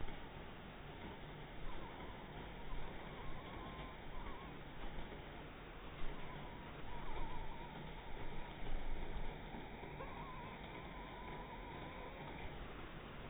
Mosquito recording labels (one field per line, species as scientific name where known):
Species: mosquito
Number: one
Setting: cup